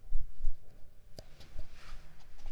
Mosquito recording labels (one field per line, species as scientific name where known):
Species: Mansonia africanus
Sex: female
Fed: unfed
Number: one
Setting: cup